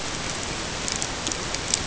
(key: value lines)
label: ambient
recorder: HydroMoth